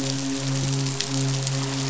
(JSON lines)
{"label": "biophony, midshipman", "recorder": "SoundTrap 500"}